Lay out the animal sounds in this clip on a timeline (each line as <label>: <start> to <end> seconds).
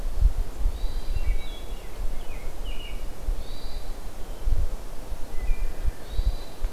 Hermit Thrush (Catharus guttatus): 0.0 to 6.7 seconds
Wood Thrush (Hylocichla mustelina): 1.0 to 1.9 seconds
American Robin (Turdus migratorius): 2.0 to 3.4 seconds
Wood Thrush (Hylocichla mustelina): 5.3 to 6.1 seconds